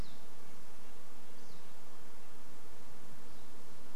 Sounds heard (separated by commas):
Red-breasted Nuthatch song, insect buzz, Pine Siskin call